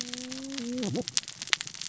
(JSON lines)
{"label": "biophony, cascading saw", "recorder": "SoundTrap 600 or HydroMoth"}